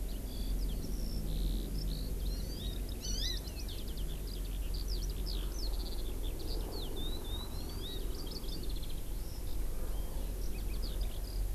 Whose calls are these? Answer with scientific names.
Alauda arvensis, Chlorodrepanis virens